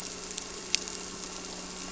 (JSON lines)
{"label": "anthrophony, boat engine", "recorder": "SoundTrap 300"}